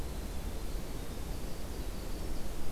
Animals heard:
Winter Wren (Troglodytes hiemalis)

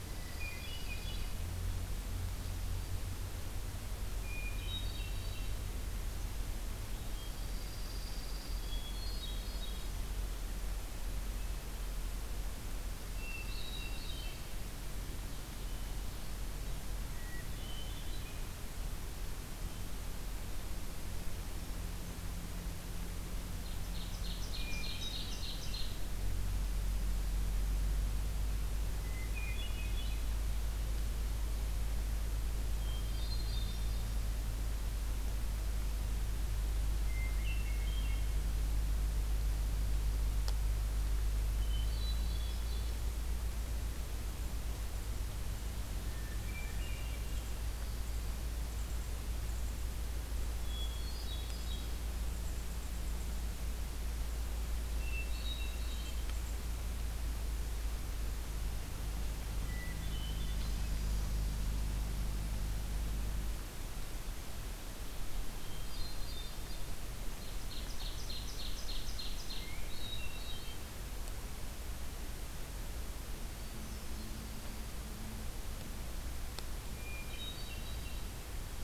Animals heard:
Red Squirrel (Tamiasciurus hudsonicus)
Dark-eyed Junco (Junco hyemalis)
Ovenbird (Seiurus aurocapilla)
Hermit Thrush (Catharus guttatus)

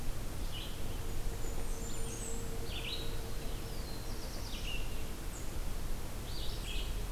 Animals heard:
Red-eyed Vireo (Vireo olivaceus)
Blackburnian Warbler (Setophaga fusca)
Black-throated Blue Warbler (Setophaga caerulescens)

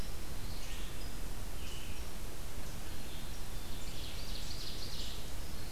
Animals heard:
Red-eyed Vireo (Vireo olivaceus)
Ovenbird (Seiurus aurocapilla)
Black-capped Chickadee (Poecile atricapillus)

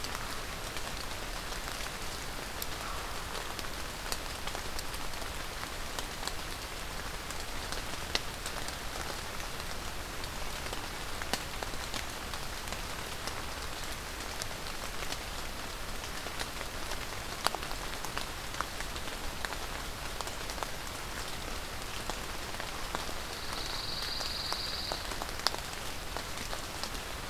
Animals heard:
American Crow (Corvus brachyrhynchos)
Pine Warbler (Setophaga pinus)

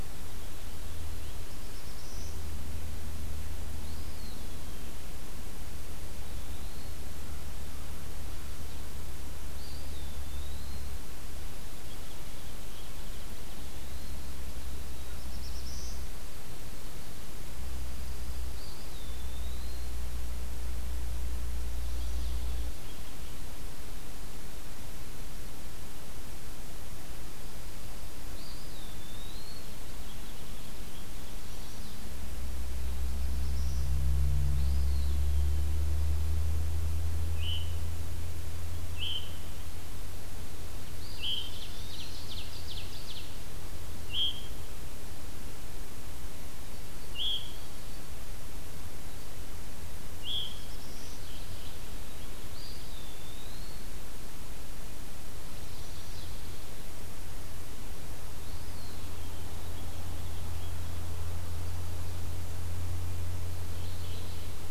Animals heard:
Mourning Warbler (Geothlypis philadelphia)
Ovenbird (Seiurus aurocapilla)
Chestnut-sided Warbler (Setophaga pensylvanica)
Black-throated Blue Warbler (Setophaga caerulescens)
Pine Warbler (Setophaga pinus)
Eastern Wood-Pewee (Contopus virens)
Veery (Catharus fuscescens)

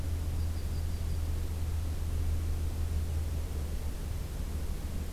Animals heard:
Yellow-rumped Warbler (Setophaga coronata)

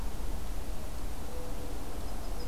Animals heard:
Mourning Dove (Zenaida macroura)

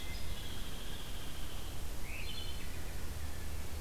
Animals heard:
Hairy Woodpecker (Dryobates villosus)
Wood Thrush (Hylocichla mustelina)

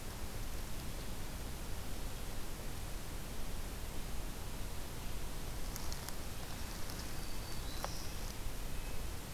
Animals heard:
Red-breasted Nuthatch (Sitta canadensis)
Black-throated Green Warbler (Setophaga virens)

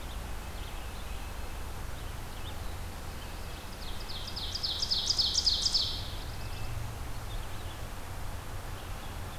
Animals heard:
Red-eyed Vireo (Vireo olivaceus)
Red-breasted Nuthatch (Sitta canadensis)
Black-throated Blue Warbler (Setophaga caerulescens)
Ovenbird (Seiurus aurocapilla)

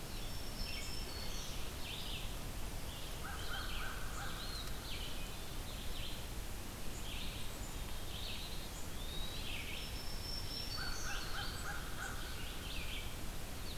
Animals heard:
American Crow (Corvus brachyrhynchos)
Red-eyed Vireo (Vireo olivaceus)
Eastern Wood-Pewee (Contopus virens)
Black-throated Green Warbler (Setophaga virens)

